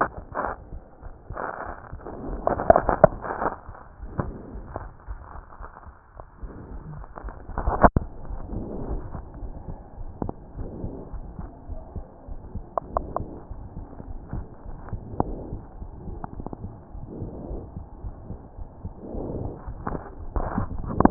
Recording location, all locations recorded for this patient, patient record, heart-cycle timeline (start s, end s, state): aortic valve (AV)
aortic valve (AV)+pulmonary valve (PV)+tricuspid valve (TV)+mitral valve (MV)
#Age: Child
#Sex: Male
#Height: 98.0 cm
#Weight: 14.0 kg
#Pregnancy status: False
#Murmur: Absent
#Murmur locations: nan
#Most audible location: nan
#Systolic murmur timing: nan
#Systolic murmur shape: nan
#Systolic murmur grading: nan
#Systolic murmur pitch: nan
#Systolic murmur quality: nan
#Diastolic murmur timing: nan
#Diastolic murmur shape: nan
#Diastolic murmur grading: nan
#Diastolic murmur pitch: nan
#Diastolic murmur quality: nan
#Outcome: Normal
#Campaign: 2015 screening campaign
0.00	10.53	unannotated
10.53	10.67	S1
10.67	10.80	systole
10.80	10.92	S2
10.92	11.10	diastole
11.10	11.25	S1
11.25	11.37	systole
11.37	11.50	S2
11.50	11.68	diastole
11.68	11.82	S1
11.82	11.92	systole
11.92	12.04	S2
12.04	12.27	diastole
12.27	12.42	S1
12.42	12.54	systole
12.54	12.66	S2
12.66	12.94	diastole
12.94	13.08	S1
13.08	13.18	systole
13.18	13.30	S2
13.30	13.49	diastole
13.49	13.59	S1
13.59	13.74	systole
13.74	13.88	S2
13.88	14.08	diastole
14.08	14.22	S1
14.22	14.34	systole
14.34	14.46	S2
14.46	14.65	diastole
14.65	14.80	S1
14.80	14.90	systole
14.90	15.02	S2
15.02	15.24	diastole
15.24	15.40	S1
15.40	15.50	systole
15.50	15.60	S2
15.60	15.82	diastole
15.82	15.92	S1
15.92	16.04	systole
16.04	16.18	S2
16.18	16.38	diastole
16.38	16.50	S1
16.50	16.62	systole
16.62	16.72	S2
16.72	16.96	diastole
16.96	17.10	S1
17.10	17.18	systole
17.18	17.30	S2
17.30	17.50	diastole
17.50	17.62	S1
17.62	17.74	systole
17.74	17.84	S2
17.84	18.04	diastole
18.04	18.14	S1
18.14	18.26	systole
18.26	18.36	S2
18.36	18.60	diastole
18.60	18.72	S1
18.72	18.82	systole
18.82	18.92	S2
18.92	19.14	diastole
19.14	21.10	unannotated